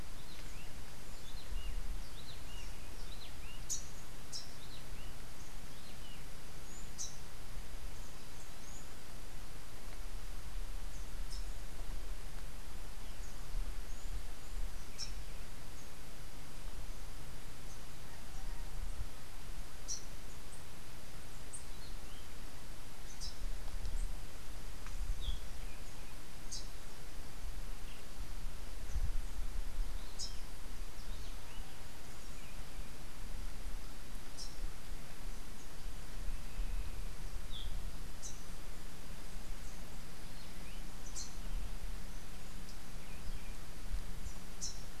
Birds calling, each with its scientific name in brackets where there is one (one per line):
Rufous-capped Warbler (Basileuterus rufifrons)
Cabanis's Wren (Cantorchilus modestus)